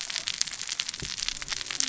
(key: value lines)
label: biophony, cascading saw
recorder: SoundTrap 600 or HydroMoth